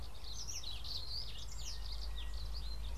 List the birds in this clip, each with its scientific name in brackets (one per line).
Brimstone Canary (Crithagra sulphurata)